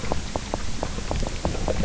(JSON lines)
{"label": "biophony, grazing", "recorder": "SoundTrap 300"}